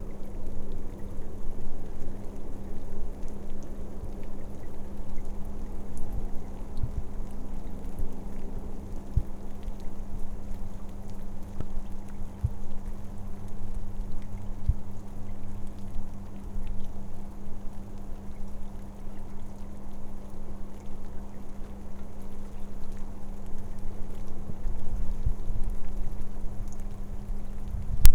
Is someone throwing rocks?
no